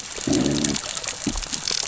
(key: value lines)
label: biophony, growl
recorder: SoundTrap 600 or HydroMoth